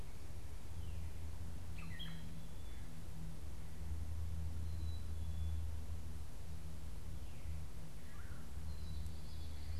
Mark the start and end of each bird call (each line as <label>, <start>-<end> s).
Gray Catbird (Dumetella carolinensis), 1.6-2.5 s
Black-capped Chickadee (Poecile atricapillus), 1.6-3.0 s
Black-capped Chickadee (Poecile atricapillus), 4.4-5.7 s
Red-bellied Woodpecker (Melanerpes carolinus), 8.0-8.6 s
Black-capped Chickadee (Poecile atricapillus), 8.4-9.8 s